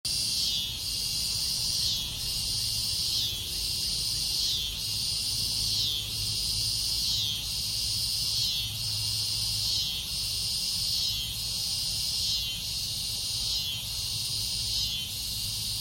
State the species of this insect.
Neotibicen pruinosus